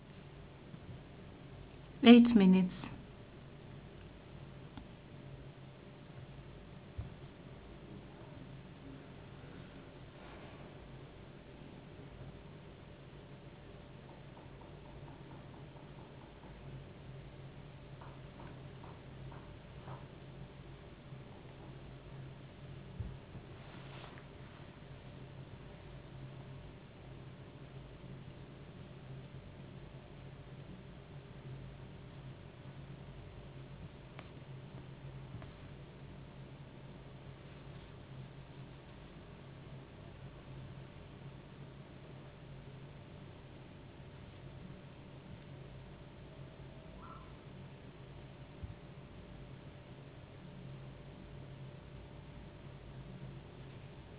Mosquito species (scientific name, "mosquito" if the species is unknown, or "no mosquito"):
no mosquito